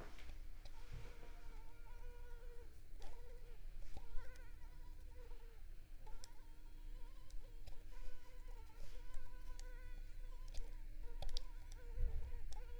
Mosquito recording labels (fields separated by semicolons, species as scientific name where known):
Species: Culex pipiens complex; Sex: female; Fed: unfed; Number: one; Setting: cup